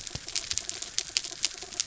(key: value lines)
label: anthrophony, mechanical
recorder: SoundTrap 300